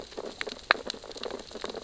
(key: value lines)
label: biophony, sea urchins (Echinidae)
recorder: SoundTrap 600 or HydroMoth